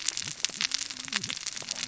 {"label": "biophony, cascading saw", "recorder": "SoundTrap 600 or HydroMoth"}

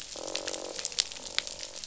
{"label": "biophony, croak", "recorder": "SoundTrap 500"}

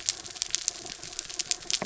{"label": "anthrophony, mechanical", "recorder": "SoundTrap 300"}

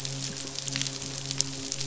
{"label": "biophony, midshipman", "recorder": "SoundTrap 500"}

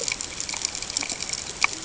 {"label": "ambient", "recorder": "HydroMoth"}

